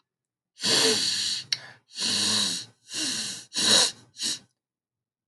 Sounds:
Sniff